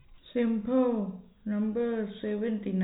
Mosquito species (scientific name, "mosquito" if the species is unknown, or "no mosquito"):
no mosquito